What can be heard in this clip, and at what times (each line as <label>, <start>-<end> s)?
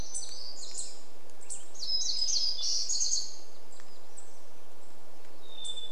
warbler song, 0-4 s
unidentified bird chip note, 0-6 s
Hermit Thrush song, 4-6 s